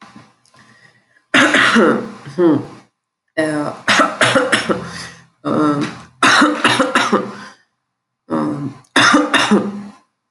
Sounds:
Cough